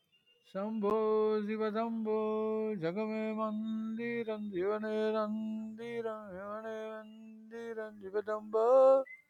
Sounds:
Sigh